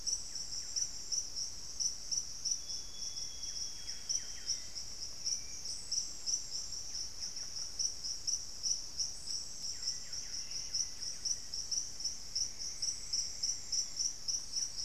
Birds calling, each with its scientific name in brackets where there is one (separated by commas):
Amazonian Grosbeak (Cyanoloxia rothschildii), Hauxwell's Thrush (Turdus hauxwelli), Black-faced Antthrush (Formicarius analis), unidentified bird, Buff-breasted Wren (Cantorchilus leucotis)